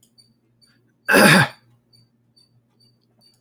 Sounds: Throat clearing